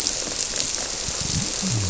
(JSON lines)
{"label": "biophony", "recorder": "SoundTrap 300"}